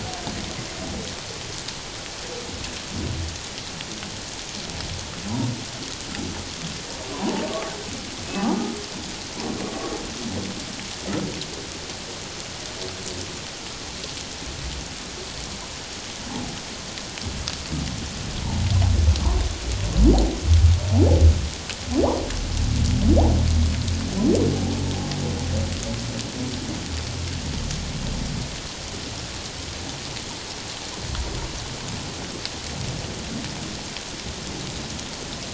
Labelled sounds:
7.1	7.4	humpback whale, 0.81 to 1.2 kHz

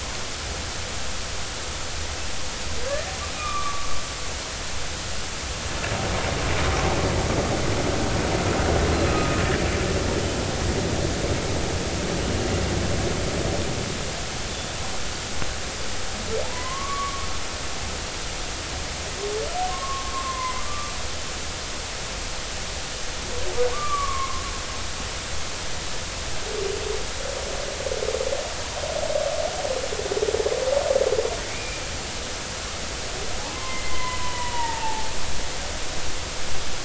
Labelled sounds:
2.9	3.9	humpback whale, 1.1 to 2.5 kHz
9.1	9.4	humpback whale, 1.2 to 1.3 kHz
16.4	17.3	humpback whale, 0.80 to 1.2 kHz
19.7	20.9	humpback whale, 0.96 to 2.1 kHz
23.7	24.4	humpback whale, 0.99 to 1.2 kHz
31.5	31.8	humpback whale, 2.1 to 2.5 kHz
33.4	35.1	humpback whale, 0.80 to 2.1 kHz

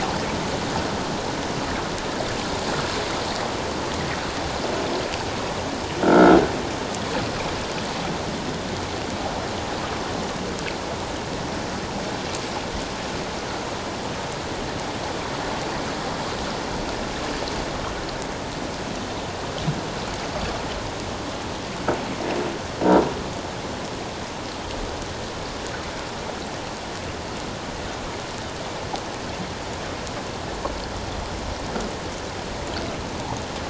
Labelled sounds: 6.0	6.4	croaking sound likely from a nearby submerged object, 1.3 to 1.6 kHz

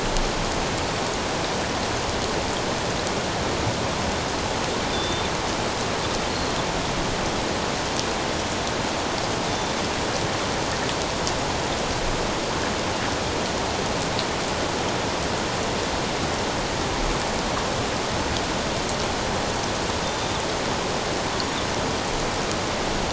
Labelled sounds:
4.9	5.3	Pacific white-sided dolphin, 3.4 to 3.7 kHz
9.5	9.8	Pacific white-sided dolphin, 3.5 to 3.7 kHz

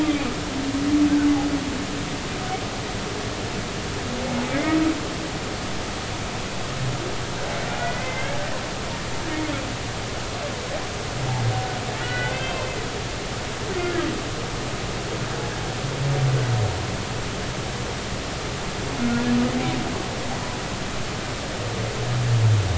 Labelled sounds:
7.8	8.4	humpback whale, 1.9 to 2.3 kHz
12.0	12.7	humpback whale, 1.4 to 3.2 kHz

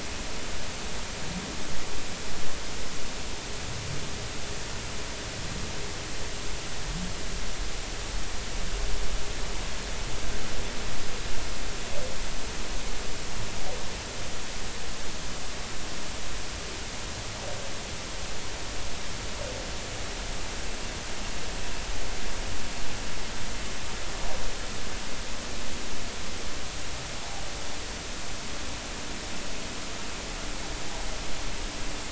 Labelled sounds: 27.2	27.4	humpback whale, 0.80 to 0.96 kHz

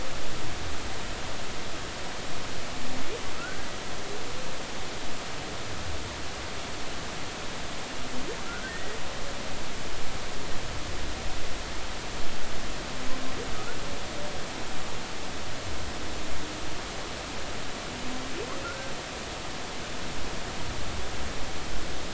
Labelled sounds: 3.4	3.7	humpback whale, 1.2 to 1.7 kHz
8.4	9.0	humpback whale, 1.3 to 2.0 kHz
18.6	18.9	humpback whale, 1.3 to 1.6 kHz

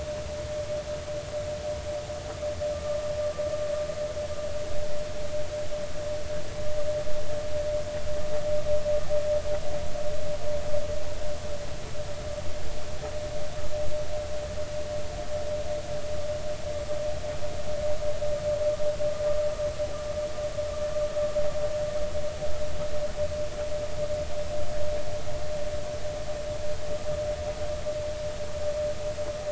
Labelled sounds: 2.7	3.0	vessel noise, 1.15 to 1.25 kHz

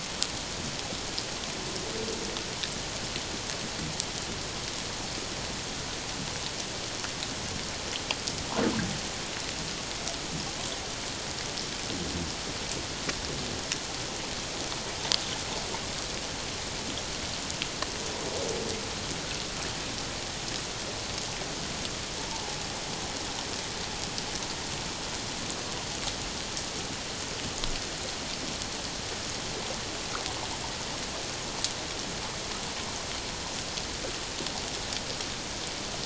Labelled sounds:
22.2	22.6	humpback whale, 0.78 to 1.1 kHz

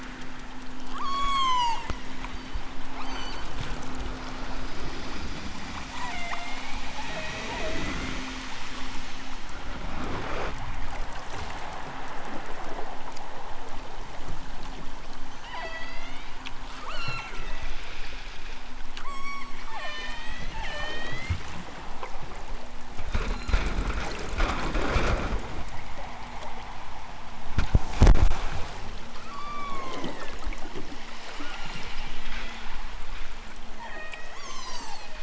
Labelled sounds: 0.9	3.5	killer whale, southern Alaska resident, 0.41 to 8.0 kHz
5.9	8.3	killer whale, southern Alaska resident, 0.28 to 3.8 kHz
15.4	16.4	killer whale, southern Alaska resident, 0.28 to 7.5 kHz
16.8	17.8	killer whale, southern Alaska resident, 0.92 to 8.0 kHz
18.9	21.3	killer whale, southern Alaska resident, 0.23 to 8.0 kHz
23.1	23.5	killer whale, southern Alaska resident, 2.4 to 7.4 kHz
29.2	30.3	killer whale, southern Alaska resident, 0.60 to 8.0 kHz
31.4	32.7	killer whale, southern Alaska resident, 0.74 to 8.0 kHz
33.7	35.1	killer whale, southern Alaska resident, 0.28 to 8.0 kHz

